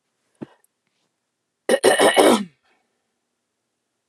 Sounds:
Throat clearing